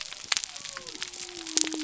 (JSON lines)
{"label": "biophony", "recorder": "SoundTrap 300"}